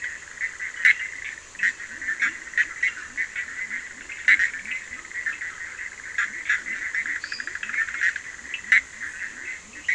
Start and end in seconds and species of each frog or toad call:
0.0	9.9	Boana bischoffi
0.0	9.9	Leptodactylus latrans
4.6	5.2	Sphaenorhynchus surdus
7.0	7.6	Dendropsophus minutus
8.2	8.6	Sphaenorhynchus surdus
~midnight

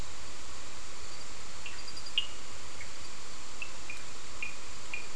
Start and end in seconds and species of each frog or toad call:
2.1	2.4	Sphaenorhynchus surdus
3.5	5.1	Sphaenorhynchus surdus
~9pm

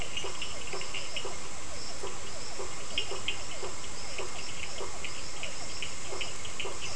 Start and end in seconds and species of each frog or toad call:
0.0	1.6	Sphaenorhynchus surdus
0.0	5.1	Boana prasina
0.0	6.9	Physalaemus cuvieri
2.7	6.9	Sphaenorhynchus surdus
5.9	6.9	Boana prasina
~7pm

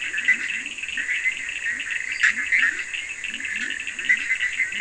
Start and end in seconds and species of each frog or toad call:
0.0	4.8	Boana bischoffi
0.0	4.8	Leptodactylus latrans
0.0	4.8	Sphaenorhynchus surdus
2.0	2.5	Dendropsophus minutus
1:30am

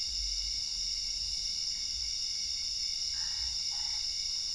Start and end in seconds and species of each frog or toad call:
3.0	4.3	Boana albopunctata
11:30pm

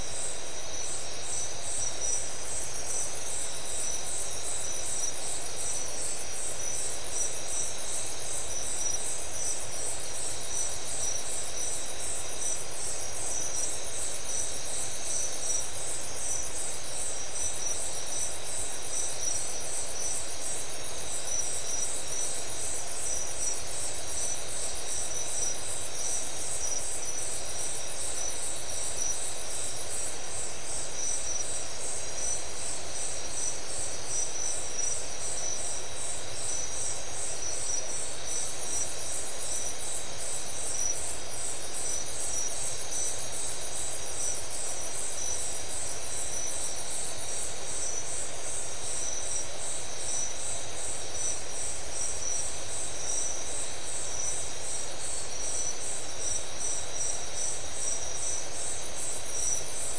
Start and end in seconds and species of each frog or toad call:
none
2:30am

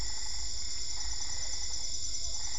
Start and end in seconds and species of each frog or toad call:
0.0	2.5	Boana albopunctata
1.3	2.5	Physalaemus cuvieri
8:30pm

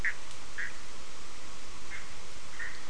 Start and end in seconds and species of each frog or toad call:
0.0	0.7	Boana bischoffi
1.8	2.8	Boana bischoffi
4:30am

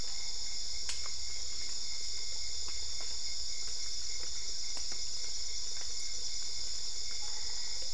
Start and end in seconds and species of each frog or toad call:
7.2	7.9	Boana albopunctata
10pm

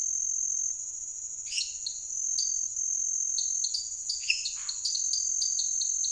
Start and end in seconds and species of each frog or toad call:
1.4	1.8	Dendropsophus minutus
1.5	6.1	Dendropsophus nanus
4.2	4.5	Dendropsophus minutus
4.5	4.8	Scinax fuscovarius
8pm

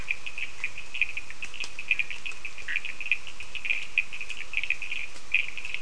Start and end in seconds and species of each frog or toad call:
0.0	5.8	Sphaenorhynchus surdus
2.6	3.2	Boana bischoffi
5:30am

